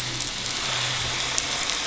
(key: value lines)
label: anthrophony, boat engine
recorder: SoundTrap 500